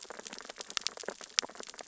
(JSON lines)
{"label": "biophony, sea urchins (Echinidae)", "recorder": "SoundTrap 600 or HydroMoth"}